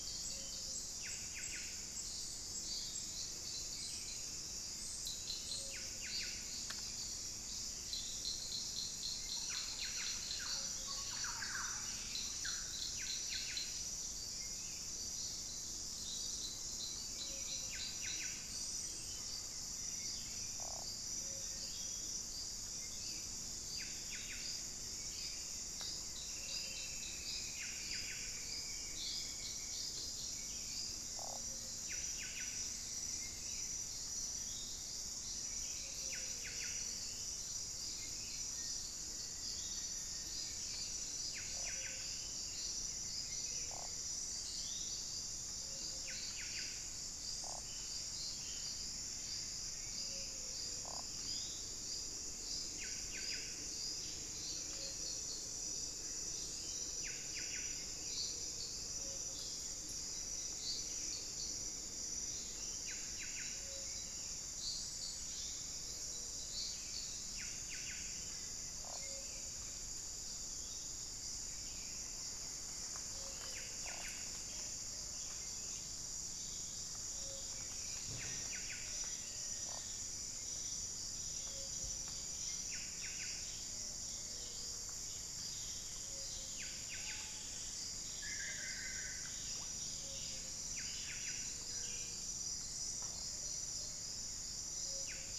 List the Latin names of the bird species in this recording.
Cantorchilus leucotis, Saltator maximus, Campylorhynchus turdinus, unidentified bird, Dendroplex picus, Geotrygon montana, Formicarius analis, Xiphorhynchus guttatus